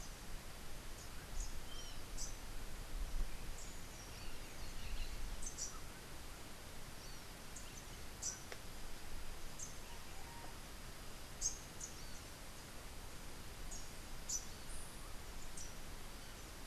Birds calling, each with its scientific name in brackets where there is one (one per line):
Rufous-capped Warbler (Basileuterus rufifrons)